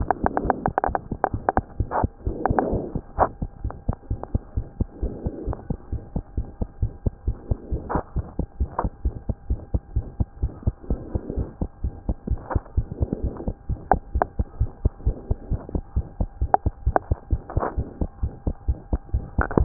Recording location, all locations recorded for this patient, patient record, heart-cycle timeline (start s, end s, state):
pulmonary valve (PV)
aortic valve (AV)+pulmonary valve (PV)+tricuspid valve (TV)+mitral valve (MV)
#Age: Child
#Sex: Female
#Height: 95.0 cm
#Weight: 13.1 kg
#Pregnancy status: False
#Murmur: Present
#Murmur locations: aortic valve (AV)+mitral valve (MV)+pulmonary valve (PV)+tricuspid valve (TV)
#Most audible location: tricuspid valve (TV)
#Systolic murmur timing: Early-systolic
#Systolic murmur shape: Plateau
#Systolic murmur grading: II/VI
#Systolic murmur pitch: Low
#Systolic murmur quality: Blowing
#Diastolic murmur timing: nan
#Diastolic murmur shape: nan
#Diastolic murmur grading: nan
#Diastolic murmur pitch: nan
#Diastolic murmur quality: nan
#Outcome: Abnormal
#Campaign: 2015 screening campaign
0.00	4.38	unannotated
4.38	4.54	diastole
4.54	4.64	S1
4.64	4.77	systole
4.77	4.88	S2
4.88	5.00	diastole
5.00	5.12	S1
5.12	5.26	systole
5.26	5.34	S2
5.34	5.48	diastole
5.48	5.58	S1
5.58	5.70	systole
5.70	5.76	S2
5.76	5.92	diastole
5.92	6.02	S1
6.02	6.14	systole
6.14	6.23	S2
6.23	6.38	diastole
6.38	6.46	S1
6.46	6.61	systole
6.61	6.68	S2
6.68	6.82	diastole
6.82	6.92	S1
6.92	7.04	systole
7.04	7.14	S2
7.14	7.27	diastole
7.27	7.36	S1
7.36	7.49	systole
7.49	7.58	S2
7.58	7.72	diastole
7.72	7.82	S1
7.82	7.94	systole
7.94	8.02	S2
8.02	8.16	diastole
8.16	8.26	S1
8.26	8.38	systole
8.38	8.48	S2
8.48	8.59	diastole
8.59	8.70	S1
8.70	8.84	systole
8.84	8.92	S2
8.92	9.04	diastole
9.04	9.14	S1
9.14	9.28	systole
9.28	9.36	S2
9.36	9.49	diastole
9.49	9.60	S1
9.60	9.71	systole
9.71	9.82	S2
9.82	9.94	diastole
9.94	10.06	S1
10.06	10.18	systole
10.18	10.28	S2
10.28	10.40	diastole
10.40	10.52	S1
10.52	10.65	systole
10.65	10.74	S2
10.74	10.90	diastole
10.90	11.00	S1
11.00	11.14	systole
11.14	11.22	S2
11.22	11.38	diastole
11.38	11.48	S1
11.48	11.61	systole
11.61	11.70	S2
11.70	11.82	diastole
11.82	11.94	S1
11.94	12.06	systole
12.06	12.16	S2
12.16	12.28	diastole
12.28	12.40	S1
12.40	12.54	systole
12.54	12.64	S2
12.64	12.76	diastole
12.76	12.86	S1
12.86	13.00	systole
13.00	13.10	S2
13.10	13.24	diastole
13.24	13.34	S1
13.34	13.45	systole
13.45	13.54	S2
13.54	13.70	diastole
13.70	19.65	unannotated